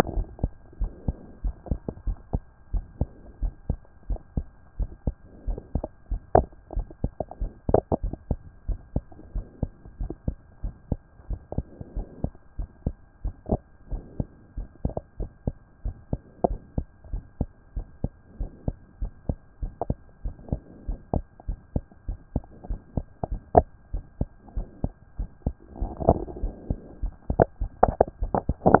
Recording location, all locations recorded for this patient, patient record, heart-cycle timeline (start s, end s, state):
pulmonary valve (PV)
aortic valve (AV)+pulmonary valve (PV)+tricuspid valve (TV)+mitral valve (MV)
#Age: Child
#Sex: Male
#Height: 131.0 cm
#Weight: 32.5 kg
#Pregnancy status: False
#Murmur: Absent
#Murmur locations: nan
#Most audible location: nan
#Systolic murmur timing: nan
#Systolic murmur shape: nan
#Systolic murmur grading: nan
#Systolic murmur pitch: nan
#Systolic murmur quality: nan
#Diastolic murmur timing: nan
#Diastolic murmur shape: nan
#Diastolic murmur grading: nan
#Diastolic murmur pitch: nan
#Diastolic murmur quality: nan
#Outcome: Abnormal
#Campaign: 2014 screening campaign
0.00	0.04	unannotated
0.04	0.14	diastole
0.14	0.26	S1
0.26	0.42	systole
0.42	0.52	S2
0.52	0.80	diastole
0.80	0.92	S1
0.92	1.06	systole
1.06	1.16	S2
1.16	1.44	diastole
1.44	1.54	S1
1.54	1.70	systole
1.70	1.80	S2
1.80	2.06	diastole
2.06	2.18	S1
2.18	2.32	systole
2.32	2.42	S2
2.42	2.72	diastole
2.72	2.84	S1
2.84	3.00	systole
3.00	3.08	S2
3.08	3.42	diastole
3.42	3.54	S1
3.54	3.68	systole
3.68	3.78	S2
3.78	4.08	diastole
4.08	4.20	S1
4.20	4.36	systole
4.36	4.46	S2
4.46	4.78	diastole
4.78	4.90	S1
4.90	5.06	systole
5.06	5.14	S2
5.14	5.46	diastole
5.46	28.80	unannotated